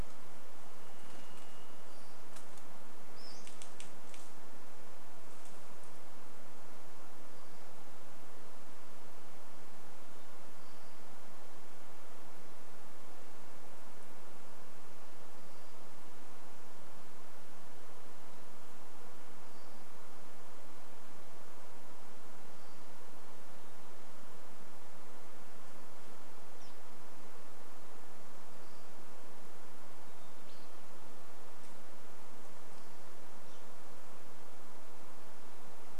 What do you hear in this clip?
Varied Thrush song, Pacific-slope Flycatcher call, woodpecker drumming, unidentified sound